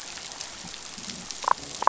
{"label": "biophony, damselfish", "recorder": "SoundTrap 500"}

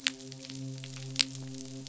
{"label": "biophony, midshipman", "recorder": "SoundTrap 500"}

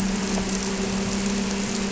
{"label": "anthrophony, boat engine", "recorder": "SoundTrap 300"}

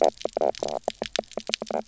{"label": "biophony, knock croak", "recorder": "SoundTrap 300"}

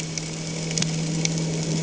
{"label": "anthrophony, boat engine", "recorder": "HydroMoth"}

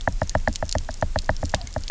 {"label": "biophony, knock", "recorder": "SoundTrap 300"}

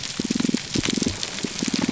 {"label": "biophony, pulse", "recorder": "SoundTrap 300"}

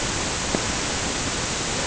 {"label": "ambient", "recorder": "HydroMoth"}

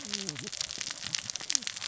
{"label": "biophony, cascading saw", "recorder": "SoundTrap 600 or HydroMoth"}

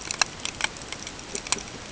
{"label": "ambient", "recorder": "HydroMoth"}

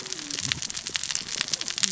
{"label": "biophony, cascading saw", "recorder": "SoundTrap 600 or HydroMoth"}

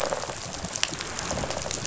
{"label": "biophony, rattle response", "recorder": "SoundTrap 500"}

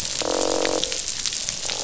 {"label": "biophony, croak", "recorder": "SoundTrap 500"}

